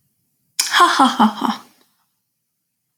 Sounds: Laughter